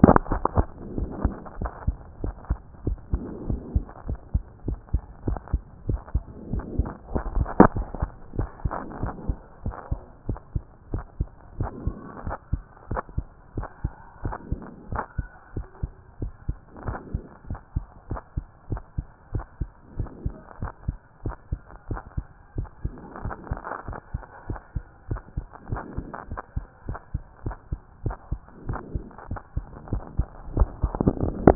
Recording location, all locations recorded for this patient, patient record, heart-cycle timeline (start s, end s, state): mitral valve (MV)
aortic valve (AV)+pulmonary valve (PV)+tricuspid valve (TV)+mitral valve (MV)
#Age: Adolescent
#Sex: Male
#Height: 155.0 cm
#Weight: 40.0 kg
#Pregnancy status: False
#Murmur: Absent
#Murmur locations: nan
#Most audible location: nan
#Systolic murmur timing: nan
#Systolic murmur shape: nan
#Systolic murmur grading: nan
#Systolic murmur pitch: nan
#Systolic murmur quality: nan
#Diastolic murmur timing: nan
#Diastolic murmur shape: nan
#Diastolic murmur grading: nan
#Diastolic murmur pitch: nan
#Diastolic murmur quality: nan
#Outcome: Normal
#Campaign: 2014 screening campaign
0.00	9.49	unannotated
9.49	9.64	diastole
9.64	9.74	S1
9.74	9.90	systole
9.90	10.00	S2
10.00	10.28	diastole
10.28	10.38	S1
10.38	10.54	systole
10.54	10.64	S2
10.64	10.92	diastole
10.92	11.04	S1
11.04	11.18	systole
11.18	11.28	S2
11.28	11.58	diastole
11.58	11.70	S1
11.70	11.84	systole
11.84	11.94	S2
11.94	12.24	diastole
12.24	12.36	S1
12.36	12.52	systole
12.52	12.62	S2
12.62	12.90	diastole
12.90	13.02	S1
13.02	13.16	systole
13.16	13.26	S2
13.26	13.56	diastole
13.56	13.68	S1
13.68	13.82	systole
13.82	13.92	S2
13.92	14.24	diastole
14.24	14.36	S1
14.36	14.50	systole
14.50	14.60	S2
14.60	14.90	diastole
14.90	15.02	S1
15.02	15.18	systole
15.18	15.28	S2
15.28	15.54	diastole
15.54	15.66	S1
15.66	15.82	systole
15.82	15.90	S2
15.90	16.20	diastole
16.20	16.32	S1
16.32	16.48	systole
16.48	16.56	S2
16.56	16.86	diastole
16.86	16.98	S1
16.98	17.12	systole
17.12	17.22	S2
17.22	17.48	diastole
17.48	17.60	S1
17.60	17.74	systole
17.74	17.86	S2
17.86	18.10	diastole
18.10	18.20	S1
18.20	18.36	systole
18.36	18.46	S2
18.46	18.70	diastole
18.70	18.82	S1
18.82	18.96	systole
18.96	19.06	S2
19.06	19.34	diastole
19.34	19.44	S1
19.44	19.60	systole
19.60	19.68	S2
19.68	19.98	diastole
19.98	20.10	S1
20.10	20.24	systole
20.24	20.34	S2
20.34	20.62	diastole
20.62	20.72	S1
20.72	20.86	systole
20.86	20.96	S2
20.96	21.24	diastole
21.24	21.36	S1
21.36	21.50	systole
21.50	21.60	S2
21.60	21.90	diastole
21.90	22.00	S1
22.00	22.16	systole
22.16	22.26	S2
22.26	22.56	diastole
22.56	22.68	S1
22.68	22.84	systole
22.84	22.92	S2
22.92	23.24	diastole
23.24	23.34	S1
23.34	23.50	systole
23.50	23.60	S2
23.60	23.86	diastole
23.86	23.98	S1
23.98	24.12	systole
24.12	24.22	S2
24.22	24.48	diastole
24.48	24.60	S1
24.60	24.74	systole
24.74	24.84	S2
24.84	25.10	diastole
25.10	25.20	S1
25.20	25.36	systole
25.36	25.44	S2
25.44	25.70	diastole
25.70	25.82	S1
25.82	25.96	systole
25.96	26.08	S2
26.08	26.30	diastole
26.30	26.40	S1
26.40	26.56	systole
26.56	26.66	S2
26.66	26.86	diastole
26.86	26.98	S1
26.98	27.14	systole
27.14	27.22	S2
27.22	27.44	diastole
27.44	27.56	S1
27.56	27.70	systole
27.70	27.80	S2
27.80	28.04	diastole
28.04	28.16	S1
28.16	28.30	systole
28.30	28.40	S2
28.40	28.68	diastole
28.68	28.80	S1
28.80	28.94	systole
28.94	29.04	S2
29.04	29.30	diastole
29.30	29.40	S1
29.40	29.56	systole
29.56	29.64	S2
29.64	29.90	diastole
29.90	30.02	S1
30.02	30.18	systole
30.18	30.26	S2
30.26	30.54	diastole
30.54	31.55	unannotated